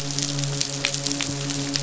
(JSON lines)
{"label": "biophony, midshipman", "recorder": "SoundTrap 500"}